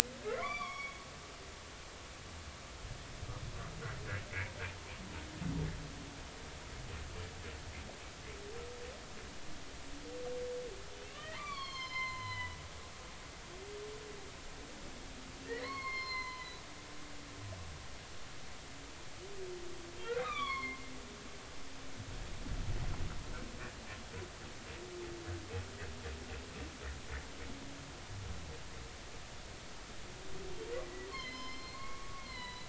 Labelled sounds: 0.2	1.0	humpback whale, 0.99 to 5.6 kHz
11.1	12.6	humpback whale, 0.83 to 6.5 kHz
15.4	16.6	humpback whale, 0.96 to 5.3 kHz
20.2	20.8	humpback whale, 0.99 to 4.5 kHz
30.8	32.6	humpback whale, 0.90 to 5.4 kHz

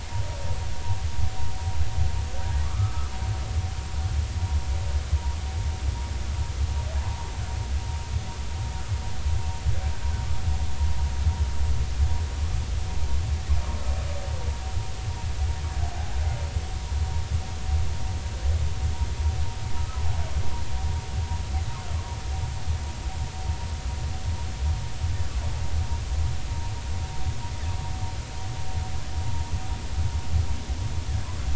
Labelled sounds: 2.6	3.1	humpback whale, 1.1 to 1.4 kHz
19.8	20.0	humpback whale, 1.2 to 1.4 kHz

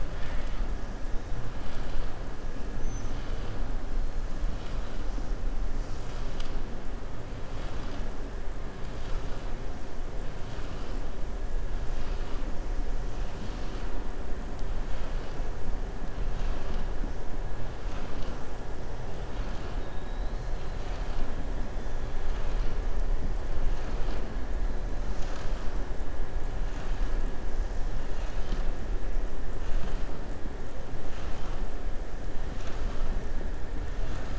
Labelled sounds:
0.1	0.6	killer whale, southern resident, 0.98 to 4.8 kHz

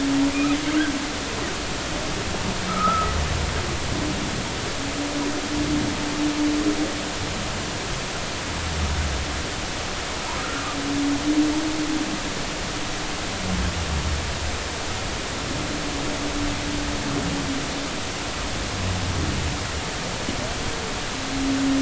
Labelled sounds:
2.7	3.1	humpback whale, 1.2 to 1.4 kHz

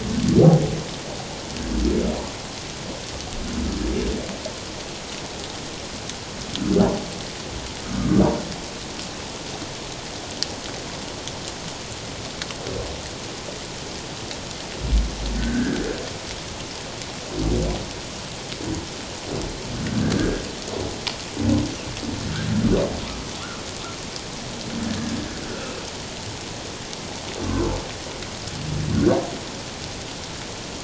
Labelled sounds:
7.8	8.2	humpback whale, 1.1 to 1.3 kHz
15.4	15.8	humpback whale, 1.4 to 1.8 kHz
20.1	20.4	humpback whale, 1.4 to 1.7 kHz
28.9	29.2	humpback whale, 1.3 to 1.7 kHz

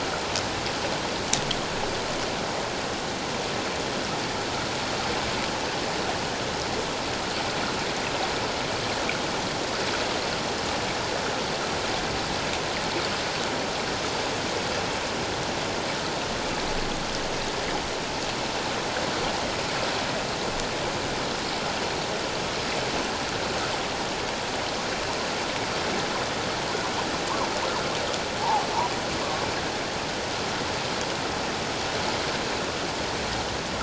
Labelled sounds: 28.4	28.6	humpback whale, 0.78 to 1.1 kHz

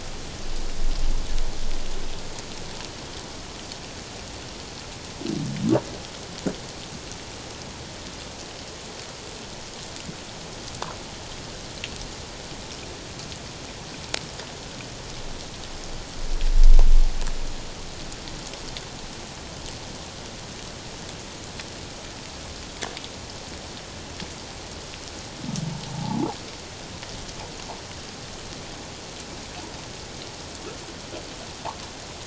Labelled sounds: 25.9	26.3	humpback whale, 0.78 to 1.0 kHz

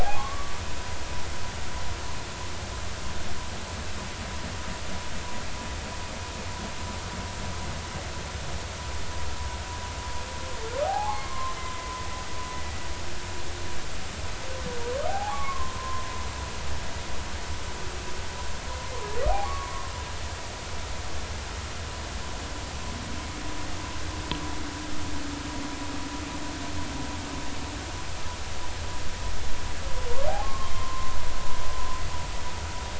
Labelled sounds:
0.0	0.6	humpback whale, 0.80 to 1.2 kHz
10.8	11.6	humpback whale, 0.80 to 1.2 kHz
15.1	16.0	humpback whale, 0.80 to 1.2 kHz
19.4	19.7	humpback whale, 1.1 to 1.2 kHz
30.4	31.2	humpback whale, 0.96 to 3.3 kHz

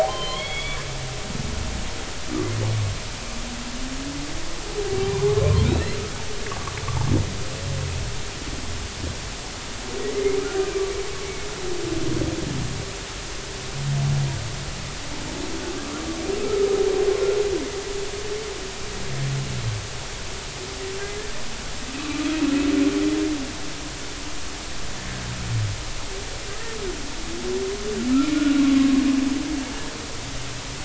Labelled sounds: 0.0	0.8	humpback whale, 0.80 to 3.5 kHz
4.8	6.0	humpback whale, 0.80 to 4.2 kHz
16.4	16.7	humpback whale, 1.2 to 1.4 kHz
28.3	28.6	humpback whale, 1.4 to 1.5 kHz

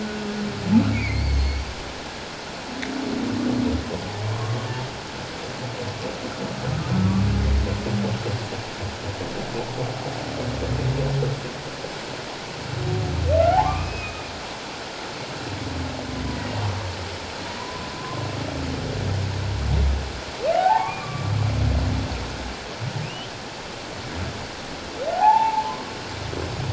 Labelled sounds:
0.9	1.6	humpback whale, 2.0 to 4.7 kHz
4.3	4.6	humpback whale, 1.0 to 1.1 kHz
13.5	14.3	humpback whale, 0.78 to 2.7 kHz
16.3	16.6	humpback whale, 1.8 to 2.0 kHz
18.0	18.2	humpback whale, 0.97 to 1.2 kHz
20.5	21.3	humpback whale, 0.78 to 2.5 kHz
23.0	23.3	humpback whale, 2.4 to 3.2 kHz
25.1	25.9	humpback whale, 0.78 to 1.1 kHz

